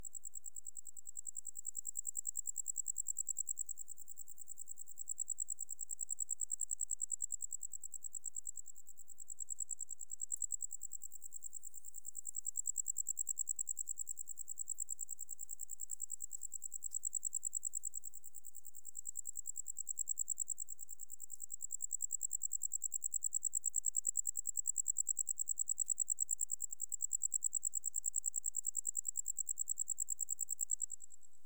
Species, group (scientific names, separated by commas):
Gryllodes sigillatus, Orthoptera